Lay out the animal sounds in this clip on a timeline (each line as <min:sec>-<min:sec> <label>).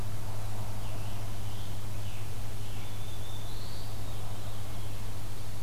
0:00.6-0:03.0 Scarlet Tanager (Piranga olivacea)
0:02.6-0:04.1 Black-throated Blue Warbler (Setophaga caerulescens)